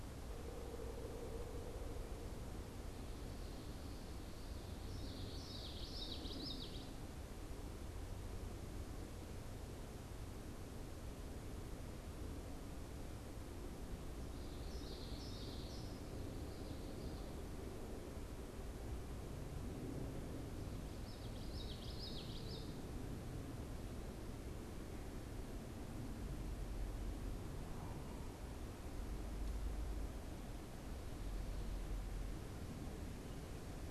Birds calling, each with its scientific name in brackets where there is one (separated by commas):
Pileated Woodpecker (Dryocopus pileatus), Common Yellowthroat (Geothlypis trichas)